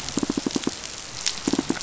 {"label": "biophony, pulse", "recorder": "SoundTrap 500"}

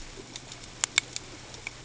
{"label": "ambient", "recorder": "HydroMoth"}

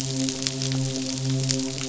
{"label": "biophony, midshipman", "recorder": "SoundTrap 500"}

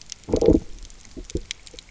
{"label": "biophony, low growl", "recorder": "SoundTrap 300"}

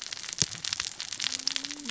{"label": "biophony, cascading saw", "recorder": "SoundTrap 600 or HydroMoth"}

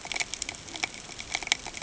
{"label": "ambient", "recorder": "HydroMoth"}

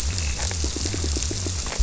{"label": "biophony", "recorder": "SoundTrap 300"}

